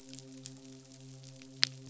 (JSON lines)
{"label": "biophony, midshipman", "recorder": "SoundTrap 500"}